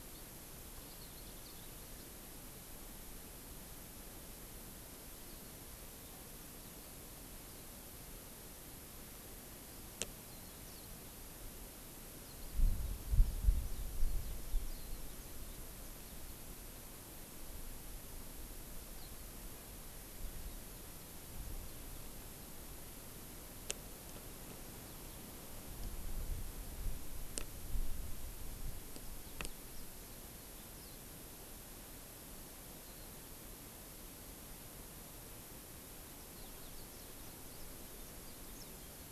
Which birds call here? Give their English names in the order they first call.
Warbling White-eye